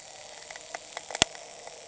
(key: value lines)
label: anthrophony, boat engine
recorder: HydroMoth